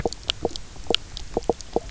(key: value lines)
label: biophony, knock croak
recorder: SoundTrap 300